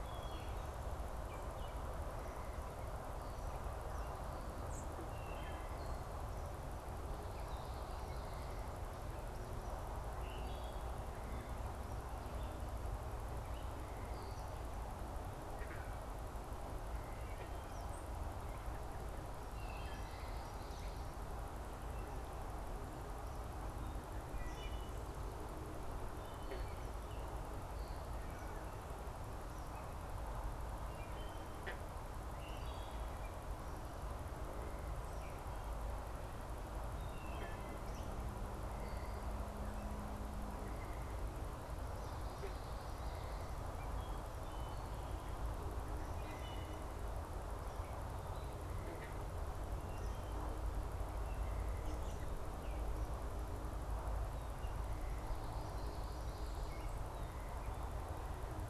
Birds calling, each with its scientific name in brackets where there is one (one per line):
Wood Thrush (Hylocichla mustelina)
unidentified bird
Eastern Kingbird (Tyrannus tyrannus)
American Robin (Turdus migratorius)